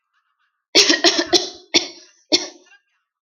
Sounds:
Cough